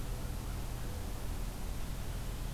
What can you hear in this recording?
American Crow